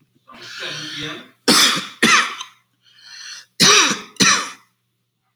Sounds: Cough